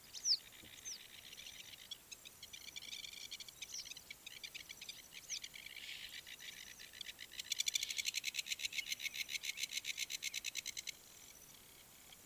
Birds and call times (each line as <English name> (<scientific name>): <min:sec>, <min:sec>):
Blacksmith Lapwing (Vanellus armatus): 0:09.1